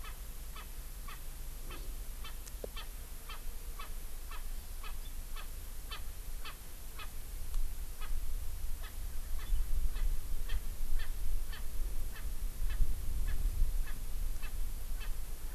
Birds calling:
Erckel's Francolin (Pternistis erckelii)

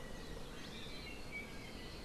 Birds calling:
Iiwi (Drepanis coccinea)

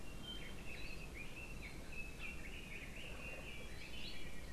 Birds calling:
Hawaii Akepa (Loxops coccineus), Red-billed Leiothrix (Leiothrix lutea)

